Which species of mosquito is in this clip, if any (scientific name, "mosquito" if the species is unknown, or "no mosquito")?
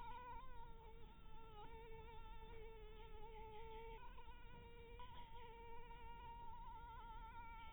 Anopheles harrisoni